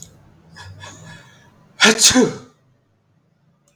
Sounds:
Sneeze